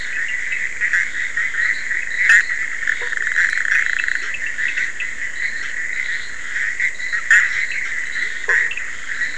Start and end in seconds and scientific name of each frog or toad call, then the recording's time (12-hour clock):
0.0	6.4	Boana leptolineata
0.0	9.3	Boana bischoffi
2.9	3.2	Boana faber
8.4	8.6	Boana faber
12:30am